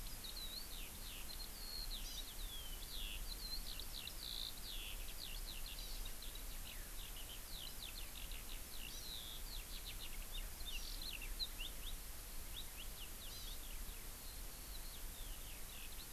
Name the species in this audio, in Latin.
Alauda arvensis, Chlorodrepanis virens